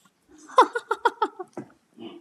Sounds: Laughter